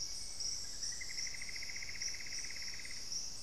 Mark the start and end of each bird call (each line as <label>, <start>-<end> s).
Plumbeous Antbird (Myrmelastes hyperythrus), 0.0-3.4 s